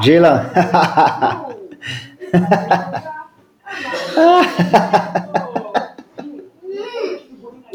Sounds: Laughter